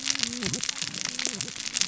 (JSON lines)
{"label": "biophony, cascading saw", "recorder": "SoundTrap 600 or HydroMoth"}